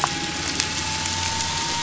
{"label": "anthrophony, boat engine", "recorder": "SoundTrap 500"}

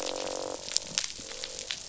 {"label": "biophony, croak", "recorder": "SoundTrap 500"}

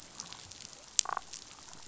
{"label": "biophony, damselfish", "recorder": "SoundTrap 500"}
{"label": "biophony", "recorder": "SoundTrap 500"}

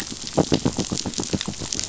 {"label": "biophony, knock", "recorder": "SoundTrap 500"}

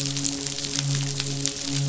{"label": "biophony, midshipman", "recorder": "SoundTrap 500"}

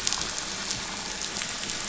{"label": "anthrophony, boat engine", "recorder": "SoundTrap 500"}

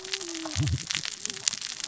{"label": "biophony, cascading saw", "recorder": "SoundTrap 600 or HydroMoth"}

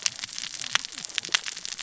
{"label": "biophony, cascading saw", "recorder": "SoundTrap 600 or HydroMoth"}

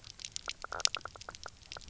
{"label": "biophony, knock croak", "recorder": "SoundTrap 300"}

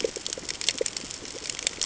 {"label": "ambient", "recorder": "HydroMoth"}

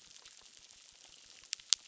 {"label": "biophony, crackle", "recorder": "SoundTrap 600"}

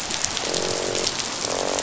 {"label": "biophony, croak", "recorder": "SoundTrap 500"}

